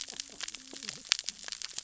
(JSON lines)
{"label": "biophony, cascading saw", "recorder": "SoundTrap 600 or HydroMoth"}